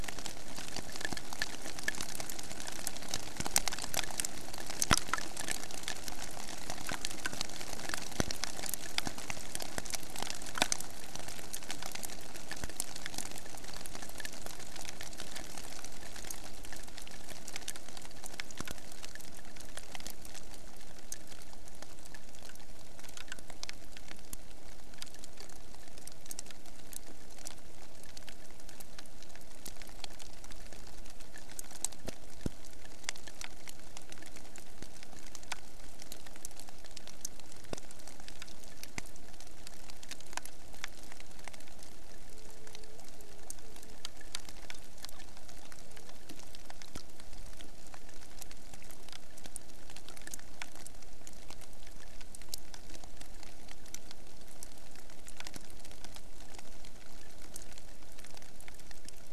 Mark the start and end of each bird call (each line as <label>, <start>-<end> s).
Hawaiian Petrel (Pterodroma sandwichensis), 42.2-46.5 s